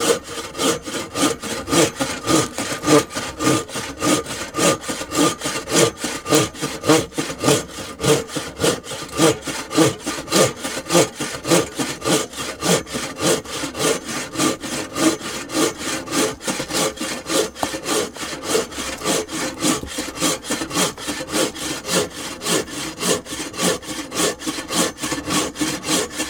Is this a repetitive movement?
yes